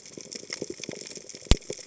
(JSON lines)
{"label": "biophony", "recorder": "HydroMoth"}